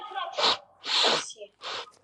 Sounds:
Sniff